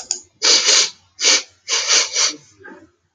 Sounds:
Sigh